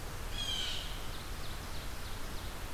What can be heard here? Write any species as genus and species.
Cyanocitta cristata, Seiurus aurocapilla